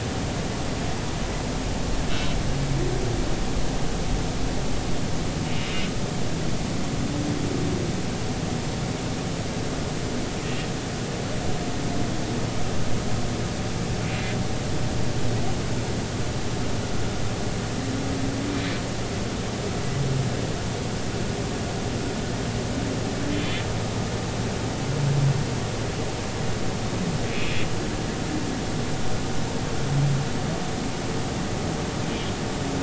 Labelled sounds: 14.1	14.3	humpback whale, 2.4 to 2.5 kHz
23.3	23.6	humpback whale, 3.0 to 3.6 kHz
27.3	27.7	humpback whale, 2.3 to 2.7 kHz

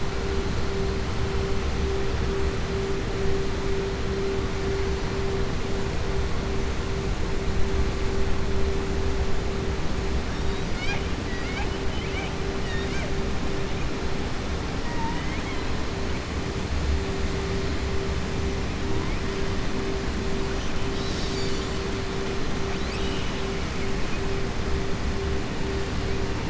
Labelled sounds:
11.2	13.1	killer whale, southern resident, 0.64 to 7.9 kHz
14.8	15.7	killer whale, southern resident, 0.90 to 4.1 kHz

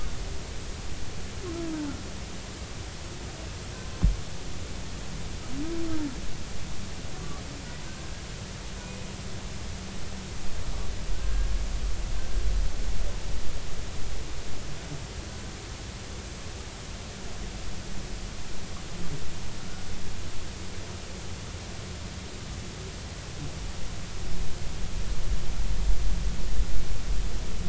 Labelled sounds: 1.7	2.0	humpback whale, 1.3 to 1.6 kHz
7.9	8.4	humpback whale, 1.1 to 1.6 kHz
8.8	9.1	humpback whale, 2.4 to 2.6 kHz
11.1	11.5	humpback whale, 1.4 to 1.7 kHz

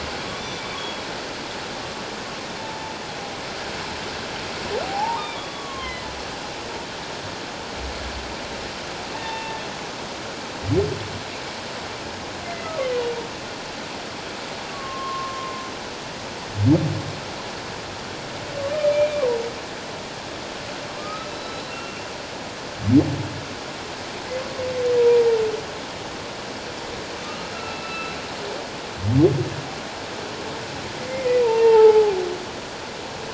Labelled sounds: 0.7	1.0	humpback whale, 3.2 to 3.4 kHz
4.8	6.1	humpback whale, 0.78 to 3.7 kHz
9.1	9.6	humpback whale, 0.81 to 3.7 kHz
12.4	12.7	humpback whale, 1.9 to 2.2 kHz
14.7	15.6	humpback whale, 0.97 to 1.2 kHz
18.9	19.3	humpback whale, 2.3 to 2.4 kHz
21.0	22.1	humpback whale, 1.2 to 4.0 kHz
25.0	25.4	humpback whale, 0.78 to 1.0 kHz
27.2	28.2	humpback whale, 1.2 to 4.0 kHz
31.1	32.2	humpback whale, 0.78 to 2.8 kHz

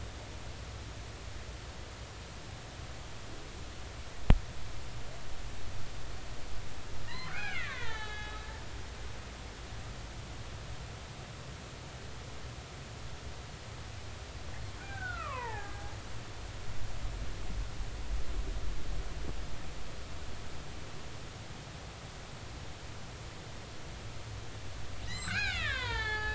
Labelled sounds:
7.0	8.4	killer whale, Bigg's (transient), 0.80 to 4.7 kHz
14.8	15.8	killer whale, Bigg's (transient), 0.80 to 2.1 kHz
25.0	26.3	killer whale, Bigg's (transient), 0.80 to 8.0 kHz

